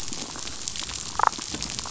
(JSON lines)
{"label": "biophony, damselfish", "recorder": "SoundTrap 500"}